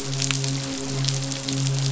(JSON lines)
{"label": "biophony, midshipman", "recorder": "SoundTrap 500"}